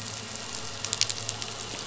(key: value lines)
label: anthrophony, boat engine
recorder: SoundTrap 500